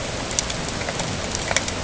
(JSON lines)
{"label": "ambient", "recorder": "HydroMoth"}